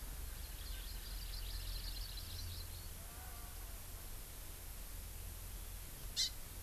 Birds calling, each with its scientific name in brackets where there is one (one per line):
Hawaii Amakihi (Chlorodrepanis virens)